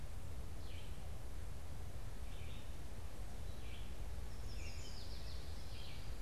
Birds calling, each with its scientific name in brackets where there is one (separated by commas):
Yellow Warbler (Setophaga petechia), Red-eyed Vireo (Vireo olivaceus)